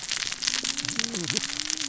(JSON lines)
{"label": "biophony, cascading saw", "recorder": "SoundTrap 600 or HydroMoth"}